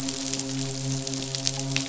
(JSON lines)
{"label": "biophony, midshipman", "recorder": "SoundTrap 500"}